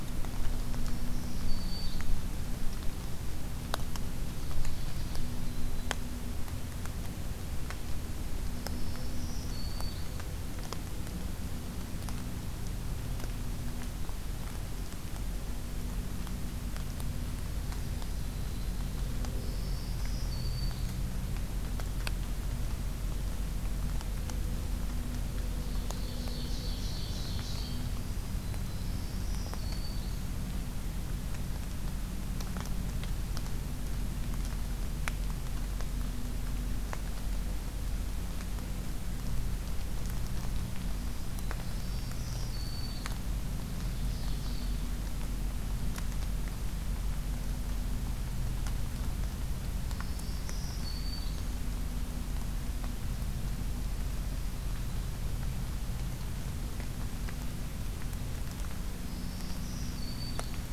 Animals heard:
Ovenbird (Seiurus aurocapilla), Black-throated Green Warbler (Setophaga virens)

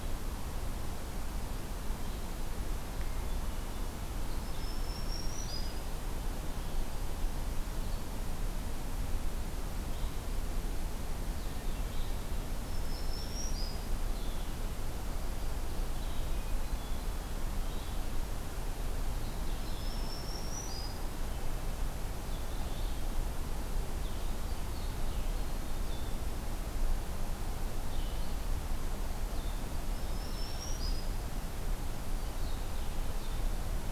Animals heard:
Hermit Thrush (Catharus guttatus), Red-eyed Vireo (Vireo olivaceus), Black-throated Green Warbler (Setophaga virens)

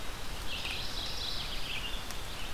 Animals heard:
Red-eyed Vireo (Vireo olivaceus), Mourning Warbler (Geothlypis philadelphia)

